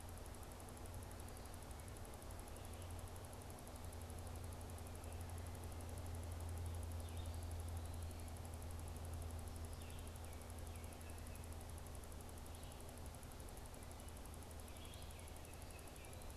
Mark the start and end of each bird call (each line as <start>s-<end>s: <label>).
9.7s-16.4s: Red-eyed Vireo (Vireo olivaceus)
15.1s-16.2s: Baltimore Oriole (Icterus galbula)